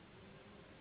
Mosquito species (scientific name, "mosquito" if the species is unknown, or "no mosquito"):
Anopheles gambiae s.s.